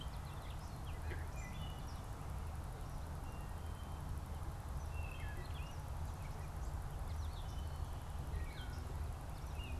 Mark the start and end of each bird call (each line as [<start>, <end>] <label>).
[0.00, 9.80] Gray Catbird (Dumetella carolinensis)
[1.26, 1.96] Wood Thrush (Hylocichla mustelina)
[3.16, 9.06] Wood Thrush (Hylocichla mustelina)